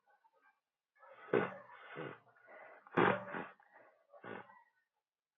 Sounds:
Sniff